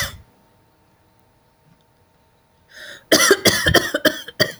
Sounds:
Cough